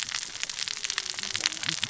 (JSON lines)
{"label": "biophony, cascading saw", "recorder": "SoundTrap 600 or HydroMoth"}